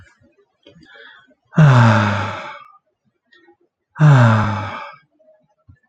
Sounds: Sigh